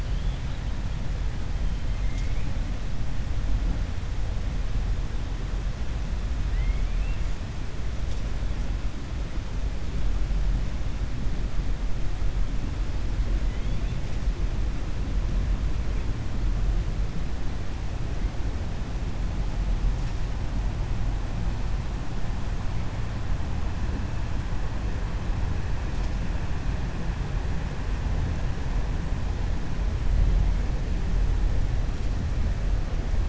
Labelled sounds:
6.4	7.2	killer whale, 1.8 to 3.2 kHz
13.4	14.0	killer whale, 2.0 to 4.1 kHz

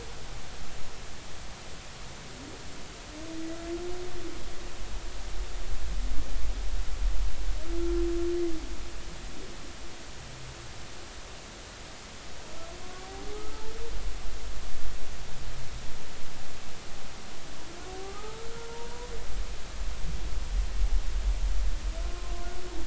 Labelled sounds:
13.3	13.6	humpback whale, 1.2 to 1.3 kHz
18.0	19.1	humpback whale, 0.80 to 1.4 kHz
22.1	22.3	humpback whale, 1.0 to 1.1 kHz

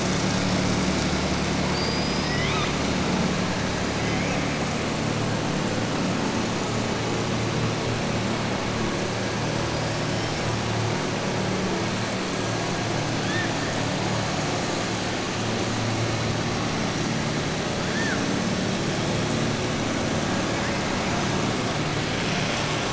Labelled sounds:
1.6	2.8	killer whale, southern resident, 1.2 to 5.2 kHz

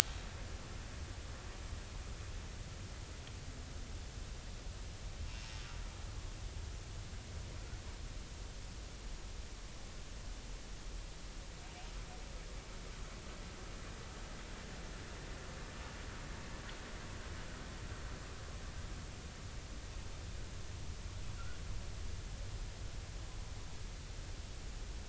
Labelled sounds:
5.2	5.5	humpback whale, 2.7 to 2.8 kHz

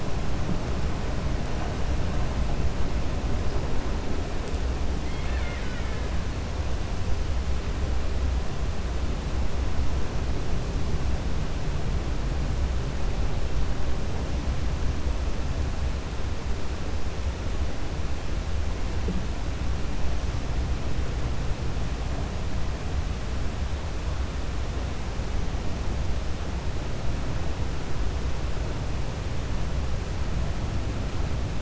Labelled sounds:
5.0	6.0	killer whale, Bigg's (transient), 1.4 to 4.3 kHz

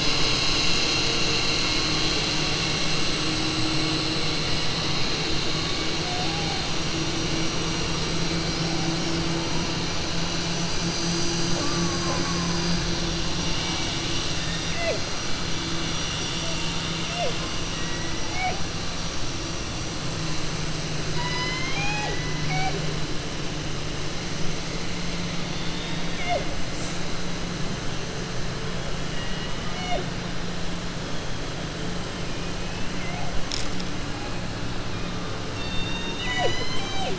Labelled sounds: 21.0	22.8	killer whale, southern resident, 0.39 to 7.5 kHz
35.5	37.1	killer whale, southern resident, 0.43 to 7.9 kHz

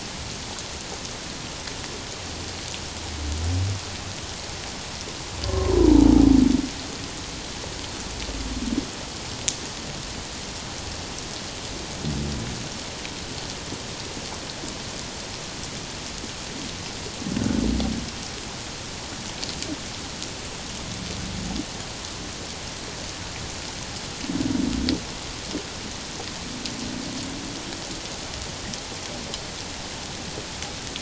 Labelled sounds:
5.5	5.7	humpback whale, 1.0 to 1.1 kHz

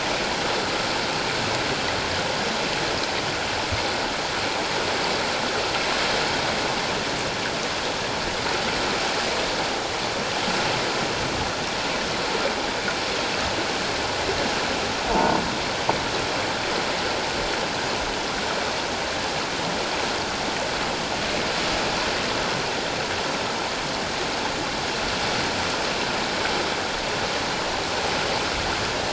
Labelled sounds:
15.1	15.4	croaking sound likely from a nearby submerged object, 0.84 to 1.0 kHz

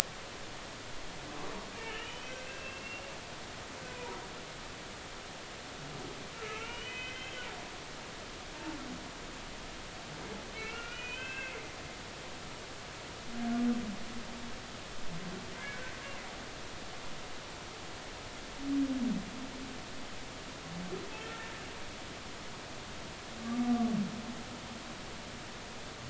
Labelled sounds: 1.8	3.1	humpback whale, 1.5 to 3.1 kHz
3.8	4.2	humpback whale, 0.90 to 2.6 kHz
6.3	7.5	humpback whale, 0.86 to 3.2 kHz
10.5	11.6	humpback whale, 1.3 to 3.2 kHz
15.5	15.8	humpback whale, 1.5 to 1.8 kHz
23.6	23.9	humpback whale, 1.1 to 1.2 kHz

